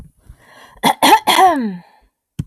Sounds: Throat clearing